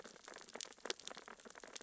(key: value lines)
label: biophony, sea urchins (Echinidae)
recorder: SoundTrap 600 or HydroMoth